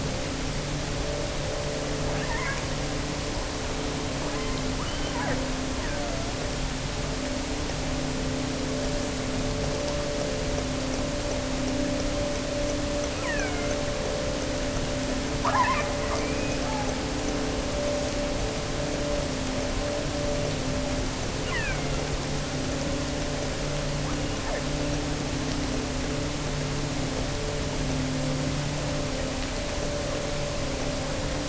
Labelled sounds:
2.1	2.7	killer whale, offshore, 0.73 to 2.7 kHz
4.1	5.4	killer whale, offshore, 0.59 to 4.9 kHz
5.8	6.4	killer whale, offshore, 0.61 to 2.6 kHz
13.1	13.8	killer whale, offshore, 0.73 to 3.2 kHz
15.4	16.8	killer whale, offshore, 0.66 to 3.5 kHz
21.4	22.1	killer whale, offshore, 0.73 to 3.3 kHz
23.9	24.7	killer whale, offshore, 0.75 to 3.2 kHz

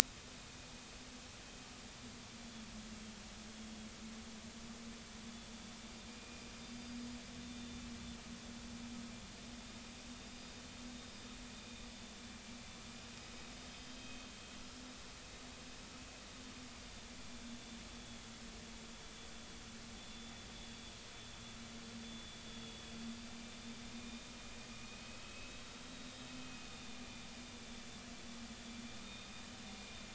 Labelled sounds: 6.1	7.8	vessel noise, 2.4 to 4.9 kHz
13.1	14.2	vessel noise, 2.5 to 3.9 kHz
16.7	17.0	vessel noise, 4.8 to 4.9 kHz
17.9	18.2	vessel noise, 3.4 to 3.5 kHz
20.0	20.3	vessel noise, 3.4 to 3.6 kHz
22.0	22.4	vessel noise, 3.4 to 3.5 kHz
23.9	25.6	vessel noise, 2.4 to 3.7 kHz
26.4	27.0	vessel noise, 2.5 to 3.7 kHz
29.0	29.4	vessel noise, 2.4 to 3.8 kHz

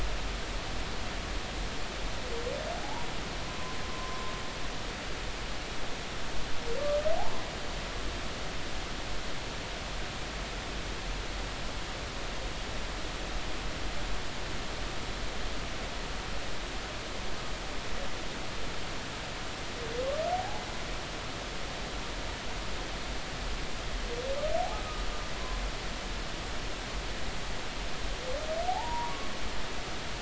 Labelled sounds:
2.8	3.1	humpback whale, 0.80 to 1.1 kHz
3.9	4.3	humpback whale, 0.99 to 1.1 kHz
20.3	20.6	humpback whale, 0.80 to 0.90 kHz
28.7	29.1	humpback whale, 0.80 to 1.2 kHz

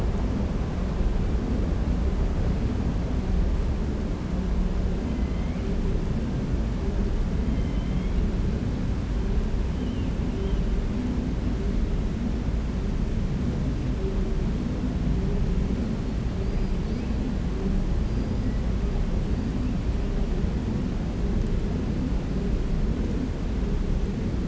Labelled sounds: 7.5	8.2	killer whale, 2.1 to 3.4 kHz

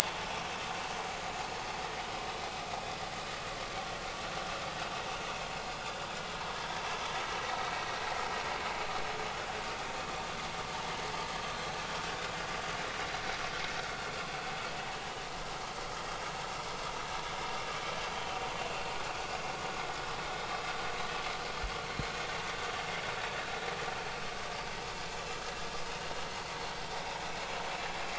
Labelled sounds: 19.1	19.3	vessel noise, 2.4 to 2.8 kHz

